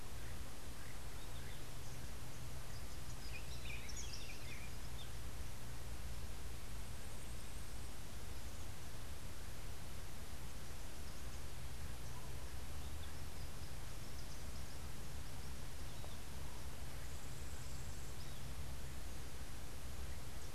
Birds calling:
Buff-throated Saltator (Saltator maximus)

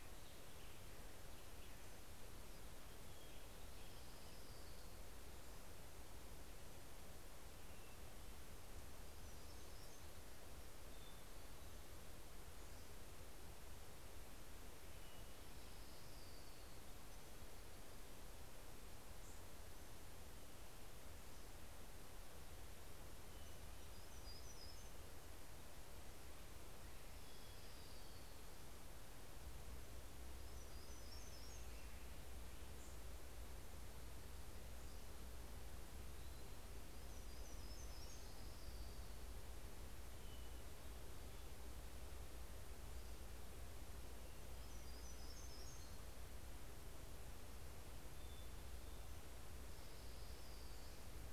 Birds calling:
Hermit Warbler (Setophaga occidentalis), American Robin (Turdus migratorius), Orange-crowned Warbler (Leiothlypis celata)

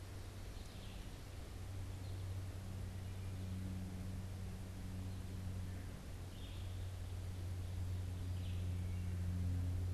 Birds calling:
Red-eyed Vireo (Vireo olivaceus), American Goldfinch (Spinus tristis)

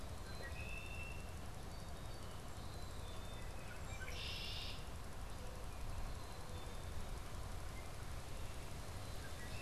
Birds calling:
Black-capped Chickadee (Poecile atricapillus), Red-winged Blackbird (Agelaius phoeniceus)

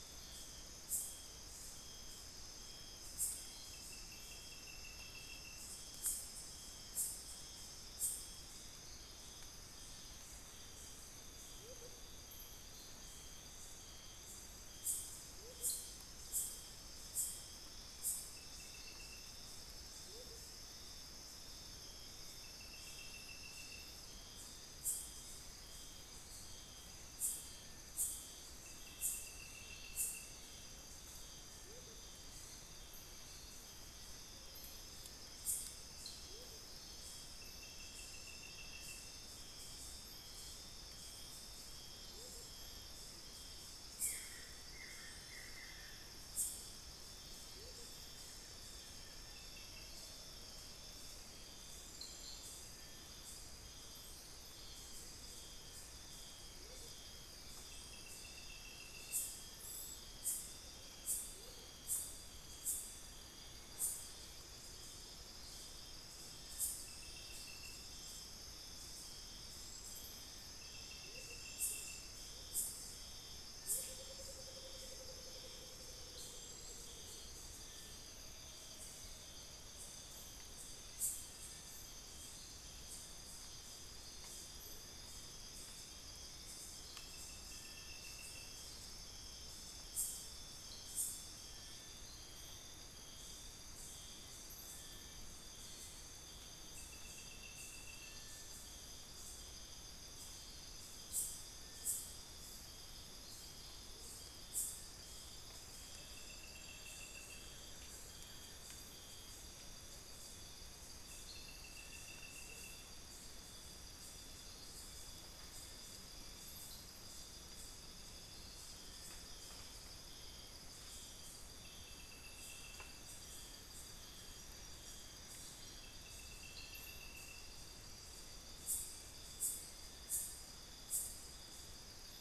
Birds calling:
Amazonian Motmot (Momotus momota), unidentified bird, Paradise Tanager (Tangara chilensis), Cinereous Tinamou (Crypturellus cinereus), Buff-throated Woodcreeper (Xiphorhynchus guttatus)

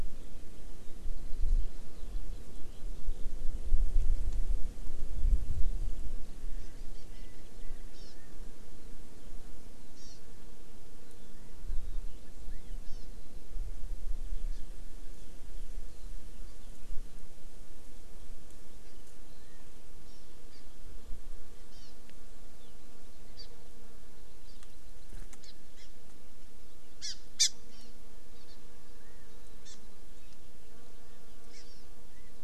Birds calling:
Erckel's Francolin (Pternistis erckelii), Eurasian Skylark (Alauda arvensis), Hawaii Amakihi (Chlorodrepanis virens), California Quail (Callipepla californica)

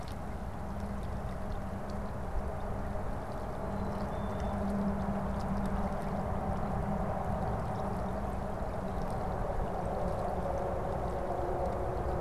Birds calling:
Black-capped Chickadee (Poecile atricapillus)

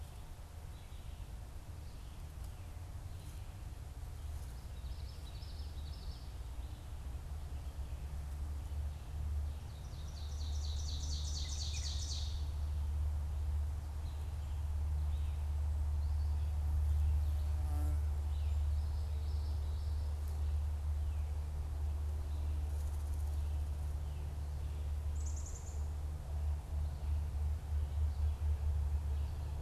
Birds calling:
Ovenbird (Seiurus aurocapilla), Black-capped Chickadee (Poecile atricapillus), Common Yellowthroat (Geothlypis trichas)

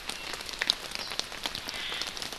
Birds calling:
Omao (Myadestes obscurus)

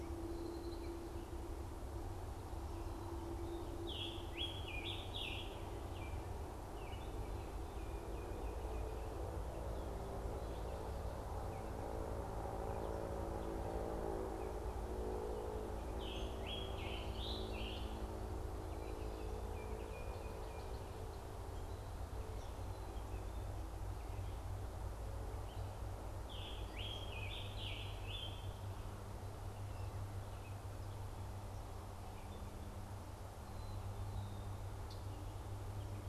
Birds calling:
Baltimore Oriole (Icterus galbula), Scarlet Tanager (Piranga olivacea)

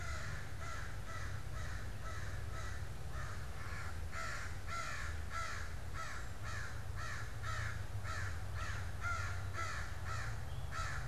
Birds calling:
American Crow (Corvus brachyrhynchos)

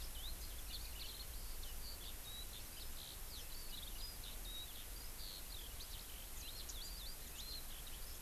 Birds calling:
Warbling White-eye (Zosterops japonicus), Eurasian Skylark (Alauda arvensis)

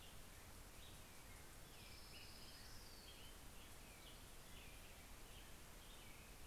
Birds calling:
Orange-crowned Warbler (Leiothlypis celata), Black-headed Grosbeak (Pheucticus melanocephalus)

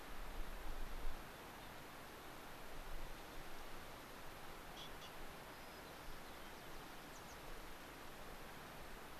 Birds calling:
American Pipit (Anthus rubescens), White-crowned Sparrow (Zonotrichia leucophrys)

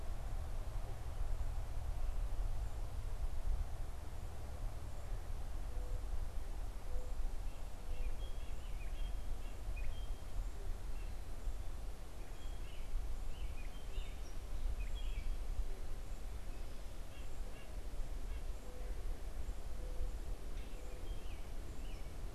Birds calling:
Mourning Dove (Zenaida macroura), White-breasted Nuthatch (Sitta carolinensis), American Robin (Turdus migratorius), Gray Catbird (Dumetella carolinensis)

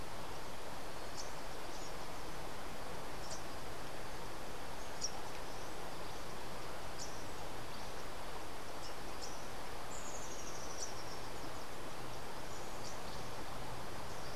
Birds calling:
Rufous-tailed Hummingbird (Amazilia tzacatl), Rufous-capped Warbler (Basileuterus rufifrons)

